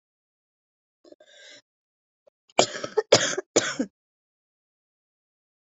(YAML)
expert_labels:
- quality: good
  cough_type: wet
  dyspnea: false
  wheezing: false
  stridor: false
  choking: false
  congestion: false
  nothing: true
  diagnosis: lower respiratory tract infection
  severity: mild
age: 31
gender: female
respiratory_condition: false
fever_muscle_pain: false
status: symptomatic